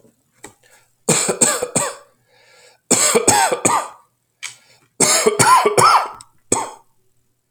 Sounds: Cough